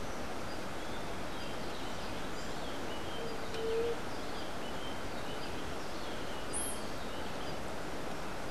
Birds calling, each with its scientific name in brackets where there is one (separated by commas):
White-tipped Dove (Leptotila verreauxi)